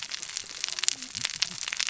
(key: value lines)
label: biophony, cascading saw
recorder: SoundTrap 600 or HydroMoth